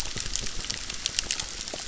{"label": "biophony, crackle", "recorder": "SoundTrap 600"}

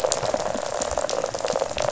{"label": "biophony, rattle", "recorder": "SoundTrap 500"}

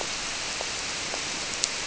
{"label": "biophony", "recorder": "SoundTrap 300"}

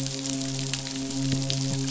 {"label": "biophony, midshipman", "recorder": "SoundTrap 500"}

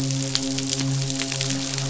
{"label": "biophony, midshipman", "recorder": "SoundTrap 500"}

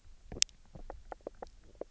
{"label": "biophony, knock croak", "recorder": "SoundTrap 300"}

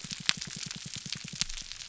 {"label": "biophony, pulse", "recorder": "SoundTrap 300"}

